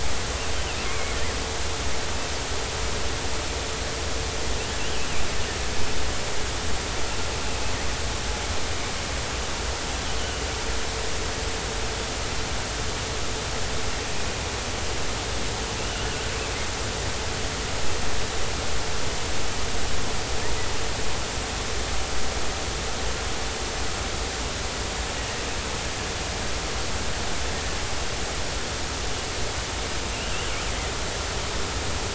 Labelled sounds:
0.5	1.2	killer whale, offshore, 2.1 to 3.2 kHz
25.2	25.4	killer whale, offshore, 1.8 to 2.0 kHz

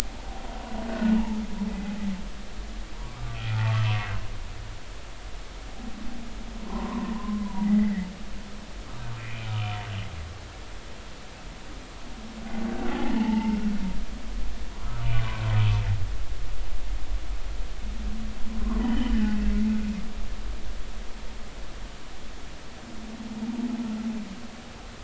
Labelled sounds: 0.2	0.5	humpback whale, 0.80 to 0.93 kHz
0.9	1.9	humpback whale, 1.4 to 2.1 kHz
3.0	4.1	humpback whale, 0.93 to 1.3 kHz
6.6	8.1	humpback whale, 0.80 to 2.1 kHz
9.2	9.5	humpback whale, 2.3 to 2.6 kHz
13.2	13.6	humpback whale, 0.80 to 2.1 kHz
14.8	15.1	humpback whale, 1.1 to 1.6 kHz
18.8	19.4	humpback whale, 1.6 to 3.2 kHz

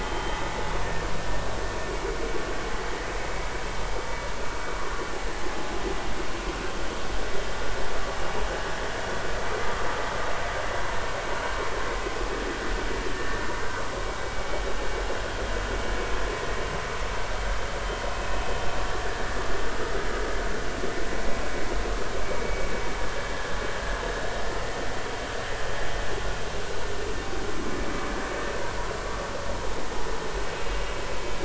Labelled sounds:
0.0	0.4	vessel noise, 3.1 to 3.2 kHz
4.7	5.0	vessel noise, 1.0 to 1.2 kHz
13.2	13.4	vessel noise, 1.7 to 1.8 kHz
22.4	22.7	vessel noise, 2.2 to 2.3 kHz

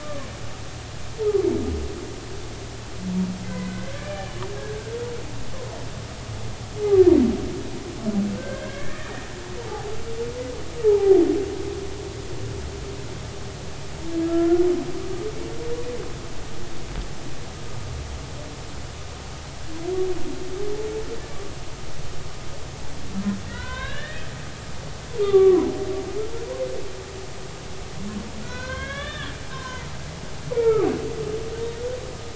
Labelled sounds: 0.0	0.3	humpback whale, 1.0 to 1.2 kHz
3.4	4.9	humpback whale, 1.4 to 3.0 kHz
8.4	9.9	humpback whale, 0.80 to 1.9 kHz
10.8	11.2	humpback whale, 0.80 to 0.99 kHz
14.3	14.7	humpback whale, 1.3 to 1.5 kHz
23.5	24.3	humpback whale, 0.93 to 4.3 kHz
25.2	25.7	humpback whale, 0.93 to 3.7 kHz
28.4	29.9	humpback whale, 0.93 to 5.3 kHz
30.5	30.9	humpback whale, 1.1 to 2.4 kHz

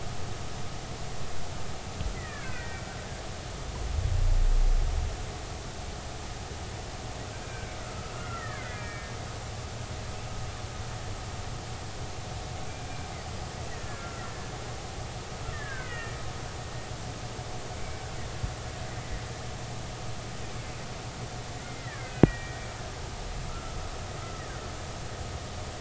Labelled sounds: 2.1	2.9	killer whale, Bigg's (transient), 1.4 to 2.7 kHz
7.4	9.1	killer whale, Bigg's (transient), 1.0 to 2.5 kHz
9.5	9.8	killer whale, Bigg's (transient), 1.9 to 2.3 kHz
13.7	14.4	killer whale, Bigg's (transient), 1.3 to 2.0 kHz
15.5	16.1	killer whale, Bigg's (transient), 1.3 to 2.3 kHz
17.8	18.0	killer whale, Bigg's (transient), 2.2 to 2.3 kHz
20.4	22.6	killer whale, Bigg's (transient), 1.5 to 2.6 kHz
23.5	23.8	killer whale, Bigg's (transient), 1.2 to 1.4 kHz

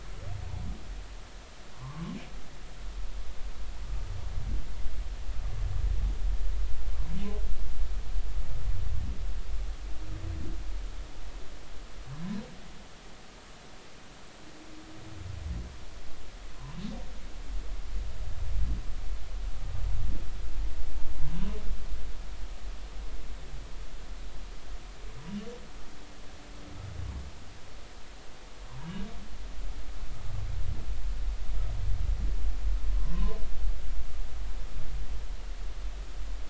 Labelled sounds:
1.8	2.2	humpback whale, 0.90 to 1.2 kHz
28.8	29.1	humpback whale, 2.8 to 3.0 kHz
33.0	33.4	humpback whale, 0.96 to 1.1 kHz

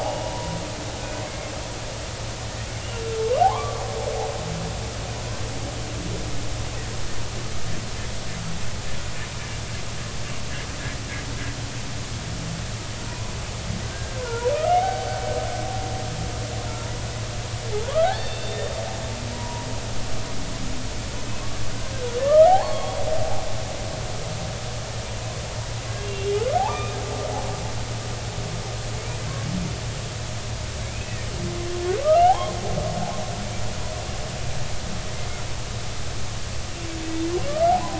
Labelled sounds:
1.2	1.5	humpback whale, 2.1 to 2.2 kHz
4.4	4.8	humpback whale, 0.80 to 1.2 kHz
13.1	15.1	humpback whale, 0.80 to 2.3 kHz
16.7	16.9	humpback whale, 0.86 to 0.99 kHz
17.7	18.8	humpback whale, 0.80 to 4.5 kHz
19.3	19.7	humpback whale, 0.90 to 1.0 kHz
22.2	23.0	humpback whale, 0.80 to 4.4 kHz
26.0	27.0	humpback whale, 0.80 to 2.8 kHz
30.8	31.2	humpback whale, 2.1 to 2.7 kHz
32.2	32.6	humpback whale, 0.80 to 1.2 kHz
37.6	37.9	humpback whale, 0.80 to 0.86 kHz

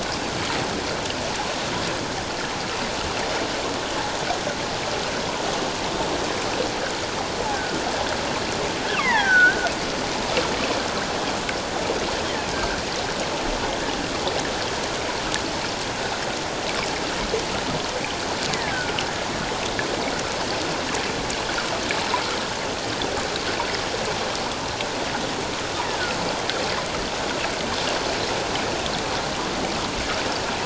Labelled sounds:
7.5	7.8	killer whale, offshore, call OFF17, 1.3 to 1.7 kHz
9.0	9.6	killer whale, offshore, call OFF17, 0.78 to 2.3 kHz
12.5	12.8	killer whale, offshore, call OFF17, 1.4 to 1.7 kHz
18.5	19.0	killer whale, offshore, call OFF17, 1.4 to 2.1 kHz
25.8	26.1	killer whale, offshore, call OFF17, 1.3 to 2.0 kHz

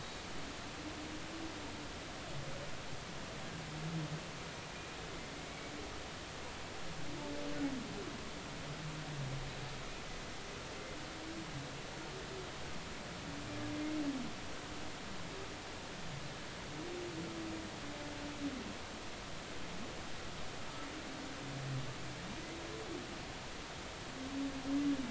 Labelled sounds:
5.5	5.7	humpback whale, 2.2 to 2.4 kHz

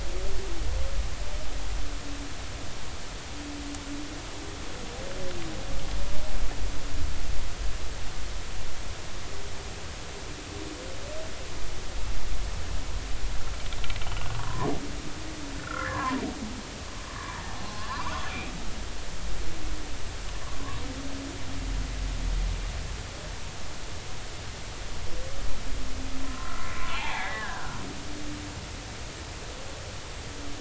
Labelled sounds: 14.0	14.7	humpback whale, 0.83 to 3.1 kHz
15.6	16.2	humpback whale, 0.93 to 1.9 kHz
17.1	18.1	humpback whale, 0.80 to 1.2 kHz
26.2	27.8	humpback whale, 0.80 to 3.5 kHz

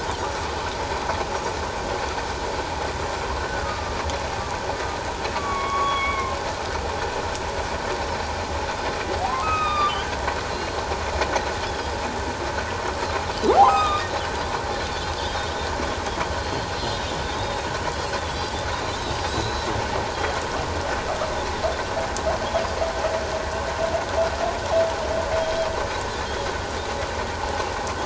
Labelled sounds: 3.4	4.0	humpback whale, 1.2 to 1.6 kHz
5.3	6.4	humpback whale, 1.0 to 3.4 kHz
9.4	9.9	humpback whale, 1.1 to 2.6 kHz
9.6	10.8	Pacific white-sided dolphin, 2.7 to 5.1 kHz
13.6	14.1	humpback whale, 0.78 to 3.9 kHz
16.4	17.7	Pacific white-sided dolphin, 3.3 to 4.4 kHz
18.2	18.5	Pacific white-sided dolphin, 3.1 to 3.6 kHz
19.3	19.7	Pacific white-sided dolphin, 3.7 to 4.1 kHz
25.3	25.7	humpback whale, 3.2 to 3.3 kHz

